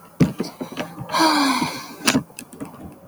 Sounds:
Sigh